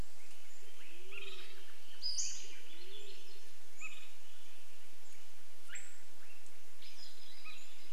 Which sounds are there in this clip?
Band-tailed Pigeon song, Pacific-slope Flycatcher call, Swainson's Thrush call, Swainson's Thrush song